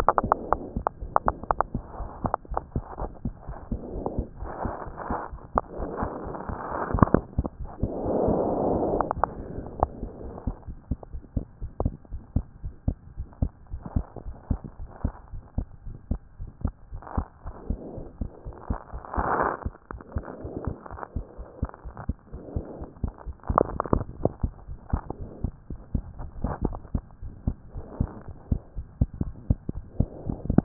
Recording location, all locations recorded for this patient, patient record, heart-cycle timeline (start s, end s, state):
pulmonary valve (PV)
aortic valve (AV)+pulmonary valve (PV)+tricuspid valve (TV)+mitral valve (MV)
#Age: Child
#Sex: Female
#Height: 92.0 cm
#Weight: 14.0 kg
#Pregnancy status: False
#Murmur: Absent
#Murmur locations: nan
#Most audible location: nan
#Systolic murmur timing: nan
#Systolic murmur shape: nan
#Systolic murmur grading: nan
#Systolic murmur pitch: nan
#Systolic murmur quality: nan
#Diastolic murmur timing: nan
#Diastolic murmur shape: nan
#Diastolic murmur grading: nan
#Diastolic murmur pitch: nan
#Diastolic murmur quality: nan
#Outcome: Abnormal
#Campaign: 2015 screening campaign
0.00	10.36	unannotated
10.36	10.46	systole
10.46	10.56	S2
10.56	10.68	diastole
10.68	10.76	S1
10.76	10.90	systole
10.90	11.00	S2
11.00	11.14	diastole
11.14	11.22	S1
11.22	11.32	systole
11.32	11.46	S2
11.46	11.62	diastole
11.62	11.72	S1
11.72	11.84	systole
11.84	11.96	S2
11.96	12.12	diastole
12.12	12.22	S1
12.22	12.32	systole
12.32	12.44	S2
12.44	12.64	diastole
12.64	12.74	S1
12.74	12.86	systole
12.86	12.98	S2
12.98	13.18	diastole
13.18	13.28	S1
13.28	13.38	systole
13.38	13.52	S2
13.52	13.72	diastole
13.72	13.82	S1
13.82	13.92	systole
13.92	14.04	S2
14.04	14.24	diastole
14.24	14.36	S1
14.36	14.50	systole
14.50	14.64	S2
14.64	14.80	diastole
14.80	14.88	S1
14.88	15.00	systole
15.00	15.14	S2
15.14	15.32	diastole
15.32	15.42	S1
15.42	15.54	systole
15.54	15.66	S2
15.66	15.86	diastole
15.86	15.96	S1
15.96	16.06	systole
16.06	16.20	S2
16.20	16.40	diastole
16.40	16.50	S1
16.50	16.60	systole
16.60	16.74	S2
16.74	16.92	diastole
16.92	17.00	S1
17.00	17.14	systole
17.14	17.26	S2
17.26	17.46	diastole
17.46	17.54	S1
17.54	17.66	systole
17.66	17.78	S2
17.78	17.94	diastole
17.94	18.04	S1
18.04	18.20	systole
18.20	18.30	S2
18.30	18.46	diastole
18.46	18.54	S1
18.54	18.66	systole
18.66	18.78	S2
18.78	18.94	diastole
18.94	19.02	S1
19.02	19.14	systole
19.14	19.26	S2
19.26	19.38	diastole
19.38	19.52	S1
19.52	19.66	systole
19.66	19.76	S2
19.76	19.91	diastole
19.91	20.00	S1
20.00	20.12	systole
20.12	20.24	S2
20.24	20.42	diastole
20.42	20.56	S1
20.56	20.66	systole
20.66	20.78	S2
20.78	20.94	diastole
20.94	21.00	S1
21.00	21.12	systole
21.12	21.24	S2
21.24	21.36	diastole
21.36	21.46	S1
21.46	21.58	systole
21.58	21.72	S2
21.72	21.86	diastole
21.86	21.94	S1
21.94	22.06	systole
22.06	22.16	S2
22.16	22.34	diastole
22.34	22.42	S1
22.42	22.54	systole
22.54	22.64	S2
22.64	22.80	diastole
22.80	22.88	S1
22.88	23.02	systole
23.02	23.14	S2
23.14	23.28	diastole
23.28	23.34	S1
23.34	30.64	unannotated